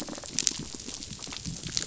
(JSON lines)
{"label": "biophony, rattle response", "recorder": "SoundTrap 500"}